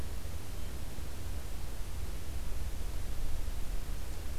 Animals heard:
forest ambience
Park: Acadia National Park